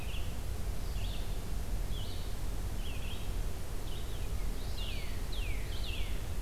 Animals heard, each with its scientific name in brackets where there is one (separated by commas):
Northern Cardinal (Cardinalis cardinalis), Red-eyed Vireo (Vireo olivaceus)